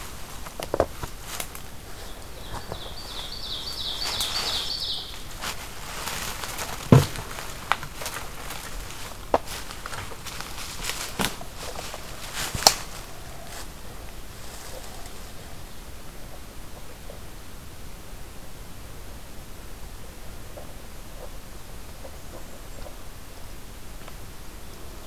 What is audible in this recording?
Ovenbird